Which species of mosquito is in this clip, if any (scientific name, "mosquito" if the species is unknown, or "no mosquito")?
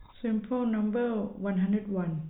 no mosquito